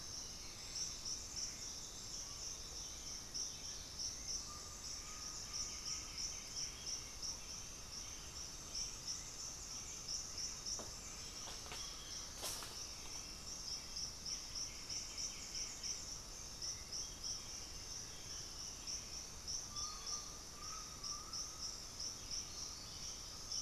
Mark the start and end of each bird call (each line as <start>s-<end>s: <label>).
4.2s-6.3s: Undulated Tinamou (Crypturellus undulatus)
5.3s-7.5s: White-winged Becard (Pachyramphus polychopterus)
7.7s-23.6s: Hauxwell's Thrush (Turdus hauxwelli)
14.1s-16.4s: White-winged Becard (Pachyramphus polychopterus)
19.7s-21.8s: Undulated Tinamou (Crypturellus undulatus)